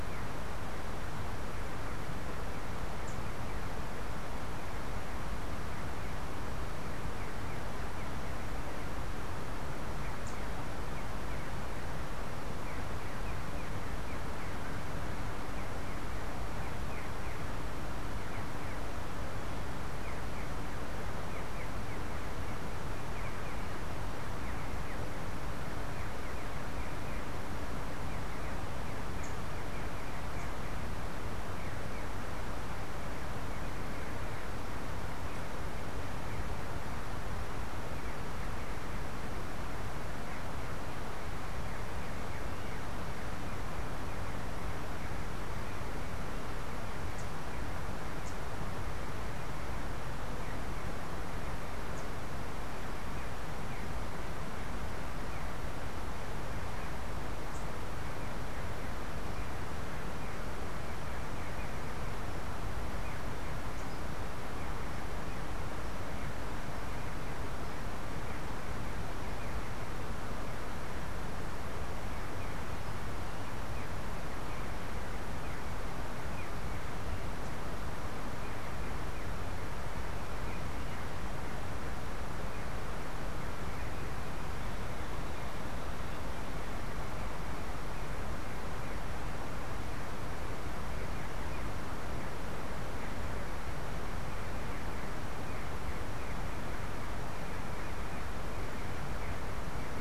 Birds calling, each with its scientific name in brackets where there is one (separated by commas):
Green Jay (Cyanocorax yncas)